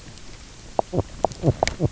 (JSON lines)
{"label": "biophony, knock croak", "recorder": "SoundTrap 300"}